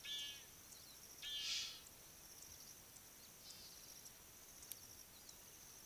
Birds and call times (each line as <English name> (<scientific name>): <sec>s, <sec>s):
Egyptian Goose (Alopochen aegyptiaca): 1.5s